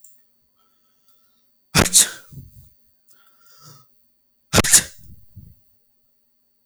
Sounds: Sneeze